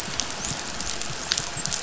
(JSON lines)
{"label": "biophony, dolphin", "recorder": "SoundTrap 500"}